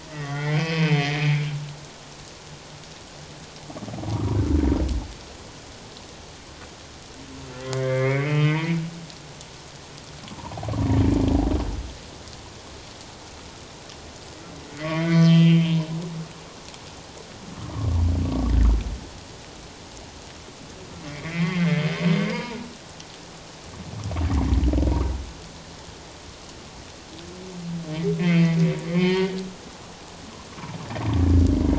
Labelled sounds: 0.0	1.5	humpback whale, 1.8 to 3.3 kHz
4.1	4.4	humpback whale, 0.91 to 1.4 kHz
7.6	8.8	humpback whale, 1.0 to 3.2 kHz
10.3	10.8	humpback whale, 0.78 to 1.1 kHz
14.8	15.8	humpback whale, 1.1 to 3.3 kHz
18.2	18.5	humpback whale, 1.1 to 1.2 kHz
21.1	21.8	humpback whale, 1.8 to 3.3 kHz
22.3	22.6	humpback whale, 0.81 to 1.8 kHz
28.2	29.3	humpback whale, 0.88 to 3.3 kHz

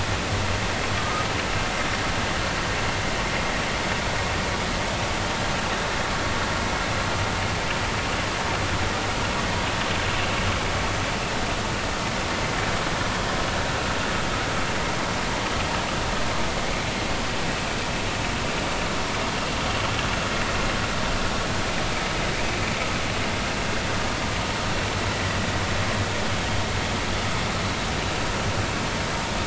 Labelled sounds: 1.0	1.3	vessel noise, 1.1 to 1.4 kHz

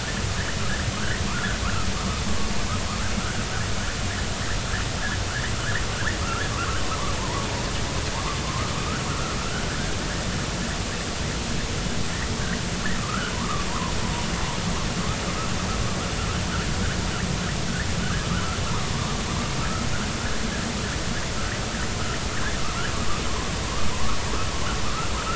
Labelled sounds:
1.3	1.9	vessel noise, 0.99 to 1.8 kHz
5.6	5.8	vessel noise, 1.2 to 2.0 kHz
7.1	7.7	vessel noise, 0.80 to 1.2 kHz
9.1	9.8	vessel noise, 1.2 to 1.8 kHz
13.0	13.9	vessel noise, 0.90 to 1.6 kHz
18.0	18.3	vessel noise, 1.4 to 1.7 kHz
22.6	22.9	vessel noise, 0.99 to 1.8 kHz
23.9	24.2	vessel noise, 0.93 to 1.4 kHz
24.8	25.1	vessel noise, 1.2 to 1.4 kHz

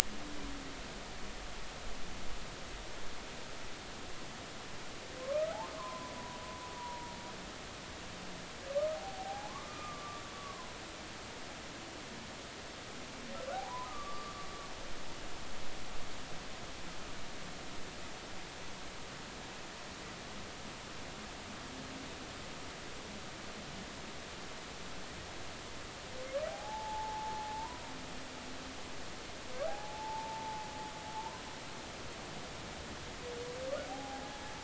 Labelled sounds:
5.2	7.1	humpback whale, 0.90 to 1.5 kHz
8.9	10.7	humpback whale, 0.80 to 1.3 kHz
13.5	14.4	humpback whale, 0.80 to 1.4 kHz
26.5	27.8	humpback whale, 0.80 to 1.1 kHz
29.7	31.4	humpback whale, 0.80 to 1.1 kHz
33.9	34.3	humpback whale, 0.80 to 0.86 kHz

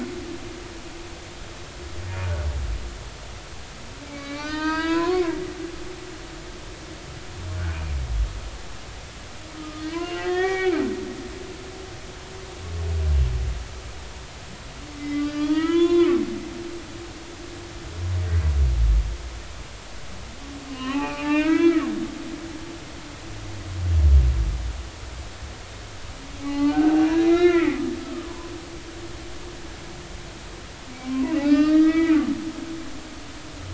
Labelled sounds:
4.0	5.4	humpback whale, 0.86 to 5.0 kHz
9.5	10.8	humpback whale, 0.93 to 2.9 kHz
15.0	16.2	humpback whale, 0.90 to 3.6 kHz
20.7	21.8	humpback whale, 0.80 to 3.5 kHz
26.4	28.5	humpback whale, 0.80 to 4.4 kHz
31.0	32.2	humpback whale, 0.90 to 5.3 kHz

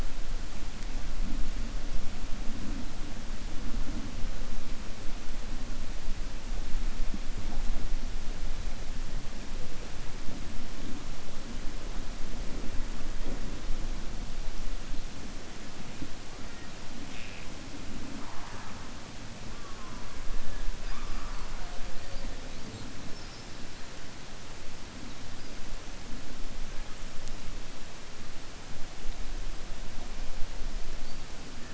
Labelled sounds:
20.8	21.7	killer whale, 0.68 to 2.7 kHz

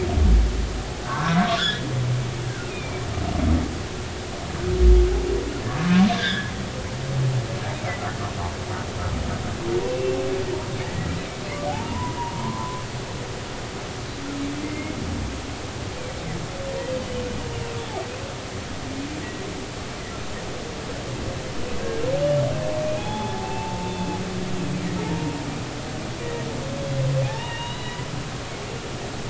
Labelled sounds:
1.0	1.8	humpback whale, 0.86 to 5.4 kHz
2.7	3.0	humpback whale, 2.2 to 2.6 kHz
7.1	7.5	humpback whale, 1.5 to 3.8 kHz
9.8	11.1	humpback whale, 1.8 to 2.8 kHz
11.7	12.8	humpback whale, 0.80 to 1.1 kHz
14.6	15.0	humpback whale, 2.0 to 2.2 kHz
17.0	17.8	humpback whale, 2.5 to 3.1 kHz
22.8	23.9	humpback whale, 0.80 to 3.5 kHz
25.1	25.3	humpback whale, 0.83 to 0.96 kHz
27.2	28.1	humpback whale, 0.80 to 4.0 kHz

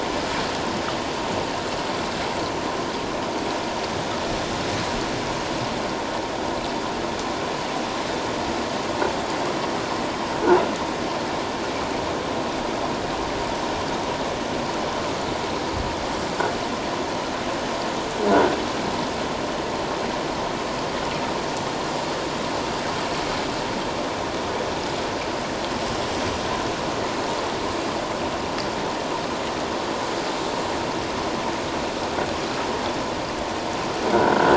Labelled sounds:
18.3	18.5	croaking sound likely from a nearby submerged object, 1.4 to 1.6 kHz

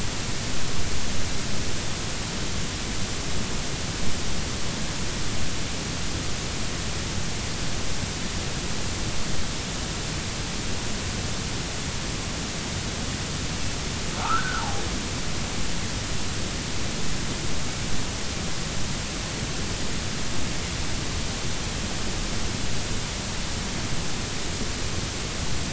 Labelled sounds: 14.2	14.6	humpback whale, 1.1 to 1.6 kHz

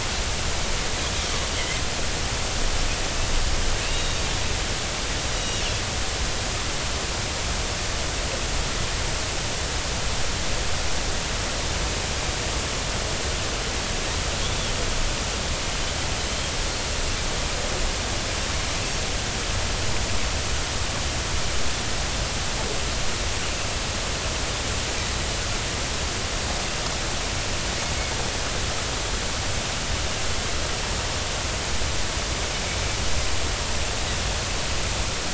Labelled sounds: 1.6	1.8	Pacific white-sided dolphin, 2.0 to 2.2 kHz
3.8	4.2	Pacific white-sided dolphin, 2.5 to 3.8 kHz
5.3	5.6	Pacific white-sided dolphin, 2.8 to 3.9 kHz

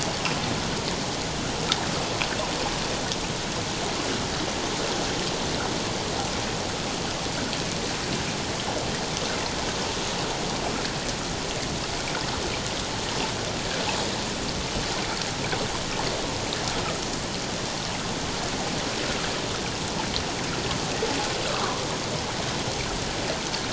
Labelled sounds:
21.5	21.7	water noise, 0.94 to 1.5 kHz

